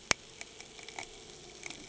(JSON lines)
{"label": "anthrophony, boat engine", "recorder": "HydroMoth"}